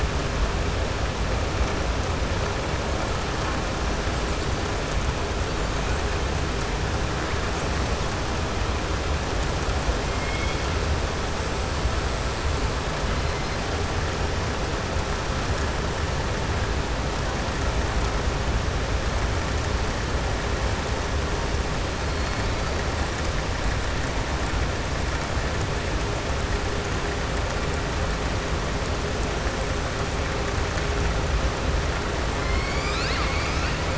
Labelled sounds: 10.1	10.6	killer whale, southern resident, 2.1 to 3.4 kHz

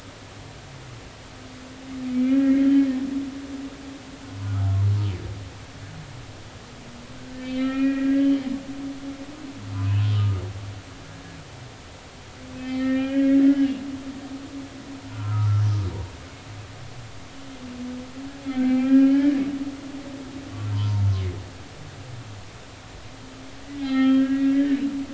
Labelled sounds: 2.1	2.9	humpback whale, 1.6 to 2.5 kHz
4.2	4.7	humpback whale, 0.96 to 1.5 kHz
7.4	8.5	humpback whale, 1.3 to 3.8 kHz
9.0	10.4	humpback whale, 1.2 to 3.0 kHz
12.5	13.8	humpback whale, 1.3 to 3.2 kHz
15.1	15.6	humpback whale, 0.90 to 1.5 kHz
18.5	19.4	humpback whale, 1.6 to 3.3 kHz
20.7	21.0	humpback whale, 0.86 to 1.1 kHz
23.8	24.8	humpback whale, 0.80 to 4.3 kHz

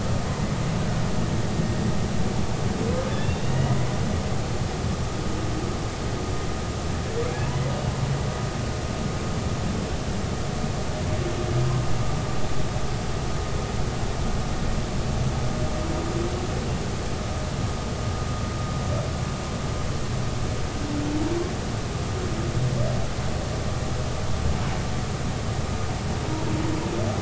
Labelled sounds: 3.1	3.8	humpback whale, 1.8 to 3.8 kHz

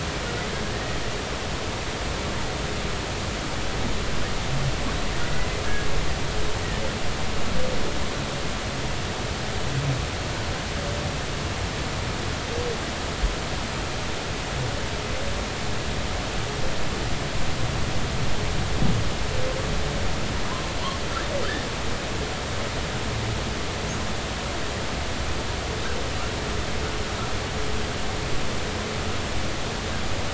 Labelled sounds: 0.7	1.0	humpback whale, 1.8 to 2.0 kHz

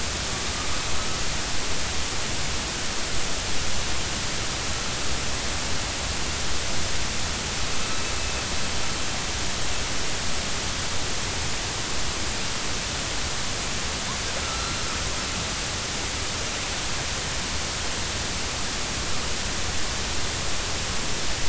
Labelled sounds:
14.4	14.9	killer whale, northern resident, A clan, AB subclan, 1.2 to 4.2 kHz

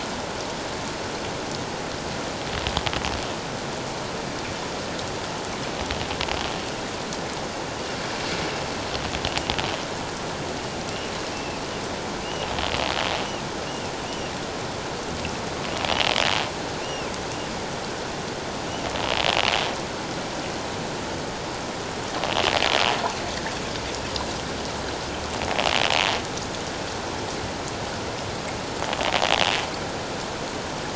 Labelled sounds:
11.3	11.6	bird, 2.4 to 2.7 kHz
16.8	17.1	bird, 2.5 to 2.9 kHz

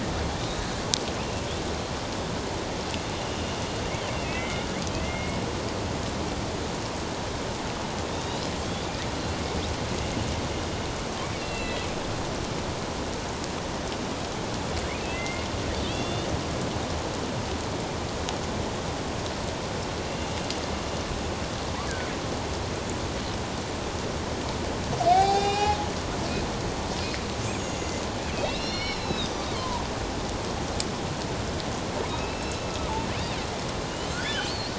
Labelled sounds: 0.4	1.5	killer whale, northern resident, A clan, AB subclan, 2.6 to 4.0 kHz
3.1	3.5	killer whale, northern resident, A clan, AB subclan, 2.8 to 3.0 kHz
4.2	5.4	killer whale, northern resident, A clan, AB subclan, 1.9 to 2.3 kHz
8.1	8.9	killer whale, northern resident, A clan, AB subclan, 3.1 to 4.2 kHz
11.4	11.8	killer whale, northern resident, A clan, AB subclan, 2.6 to 4.2 kHz
15.0	15.5	killer whale, northern resident, A clan, AB subclan, 2.0 to 2.8 kHz
15.8	16.3	killer whale, northern resident, A clan, AB subclan, 2.5 to 3.7 kHz
20.1	20.4	killer whale, northern resident, A clan, AB subclan, 2.7 to 2.9 kHz
25.1	25.8	killer whale, northern resident, A clan, AB subclan, 0.78 to 5.9 kHz
27.4	29.8	killer whale, northern resident, A clan, AB subclan, 0.91 to 6.8 kHz
32.1	32.6	killer whale, northern resident, A clan, AB subclan, 2.4 to 2.7 kHz
34.1	34.6	killer whale, northern resident, A clan, AB subclan, 1.3 to 3.2 kHz

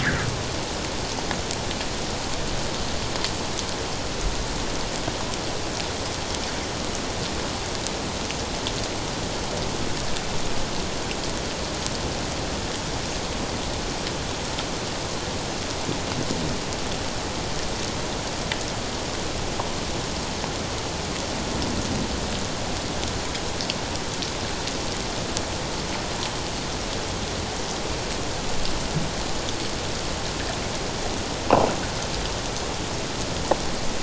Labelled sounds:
0.0	0.3	fish, 1.4 to 2.1 kHz

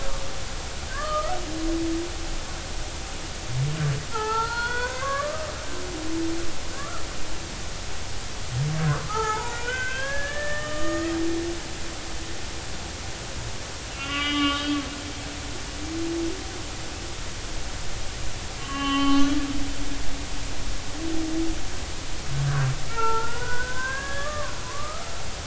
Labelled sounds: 0.9	1.3	humpback whale, 1.1 to 1.3 kHz
4.1	5.5	humpback whale, 0.80 to 4.4 kHz
8.8	11.2	humpback whale, 0.80 to 7.2 kHz
13.9	14.8	humpback whale, 1.1 to 3.8 kHz
18.6	19.4	humpback whale, 0.80 to 3.1 kHz
22.4	25.4	humpback whale, 0.83 to 1.9 kHz

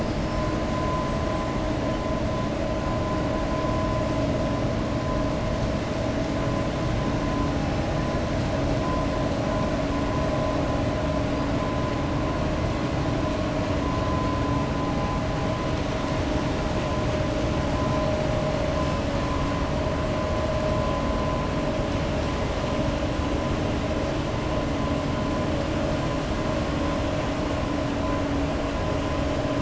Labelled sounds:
0.0	0.4	killer whale, 4.6 to 5.4 kHz

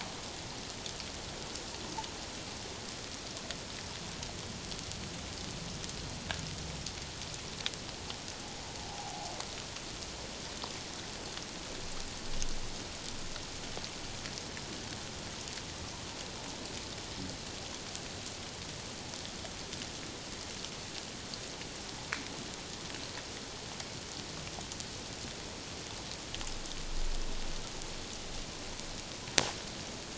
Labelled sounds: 8.9	9.3	humpback whale, 0.78 to 0.97 kHz

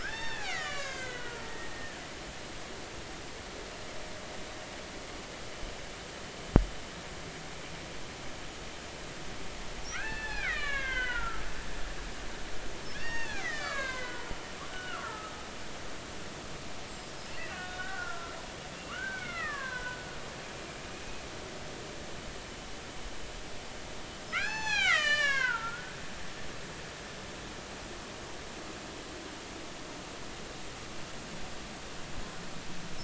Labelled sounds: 0.0	2.0	killer whale, Bigg's (transient), 0.80 to 7.5 kHz
9.9	11.4	killer whale, Bigg's (transient), 0.93 to 4.4 kHz
12.9	14.3	killer whale, Bigg's (transient), 0.80 to 6.8 kHz
14.7	15.3	killer whale, Bigg's (transient), 1.1 to 3.0 kHz
17.4	18.3	killer whale, Bigg's (transient), 1.3 to 3.8 kHz
18.8	20.0	killer whale, Bigg's (transient), 0.93 to 3.1 kHz
24.3	26.5	killer whale, Bigg's (transient), 0.80 to 7.9 kHz

